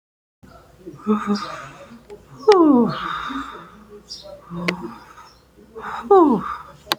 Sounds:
Sigh